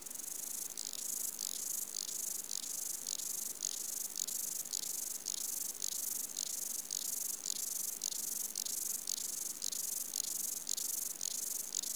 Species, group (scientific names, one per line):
Stauroderus scalaris
Orthoptera